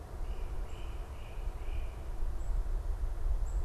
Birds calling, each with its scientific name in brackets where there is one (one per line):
Black-capped Chickadee (Poecile atricapillus)
Great Crested Flycatcher (Myiarchus crinitus)